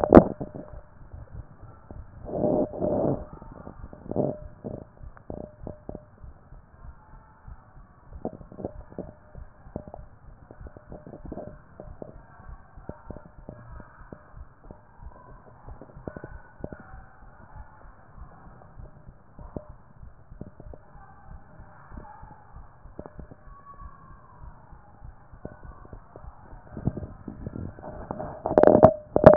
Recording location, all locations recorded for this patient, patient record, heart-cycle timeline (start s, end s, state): mitral valve (MV)
aortic valve (AV)+pulmonary valve (PV)+tricuspid valve (TV)+mitral valve (MV)
#Age: nan
#Sex: Female
#Height: nan
#Weight: nan
#Pregnancy status: True
#Murmur: Absent
#Murmur locations: nan
#Most audible location: nan
#Systolic murmur timing: nan
#Systolic murmur shape: nan
#Systolic murmur grading: nan
#Systolic murmur pitch: nan
#Systolic murmur quality: nan
#Diastolic murmur timing: nan
#Diastolic murmur shape: nan
#Diastolic murmur grading: nan
#Diastolic murmur pitch: nan
#Diastolic murmur quality: nan
#Outcome: Abnormal
#Campaign: 2014 screening campaign
0.00	16.83	unannotated
16.83	16.94	diastole
16.94	17.04	S1
17.04	17.22	systole
17.22	17.32	S2
17.32	17.56	diastole
17.56	17.66	S1
17.66	17.84	systole
17.84	17.94	S2
17.94	18.18	diastole
18.18	18.28	S1
18.28	18.46	systole
18.46	18.56	S2
18.56	18.78	diastole
18.78	18.90	S1
18.90	19.06	systole
19.06	19.16	S2
19.16	19.39	diastole
19.39	19.51	S1
19.51	19.70	systole
19.70	19.78	S2
19.78	20.00	diastole
20.00	20.12	S1
20.12	20.32	systole
20.32	20.42	S2
20.42	20.66	diastole
20.66	20.80	S1
20.80	20.96	systole
20.96	21.04	S2
21.04	21.27	diastole
21.27	21.40	S1
21.40	21.58	systole
21.58	21.68	S2
21.68	21.91	diastole
21.91	22.04	S1
22.04	22.22	systole
22.22	22.32	S2
22.32	22.52	diastole
22.52	22.66	S1
22.66	22.84	systole
22.84	22.94	S2
22.94	23.18	diastole
23.18	29.36	unannotated